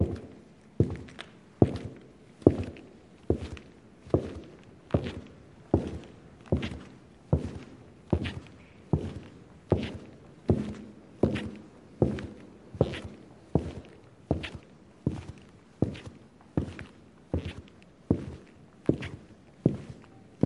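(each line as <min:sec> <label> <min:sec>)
0:00.1 Women walking with their shoes making stepping noises. 0:20.5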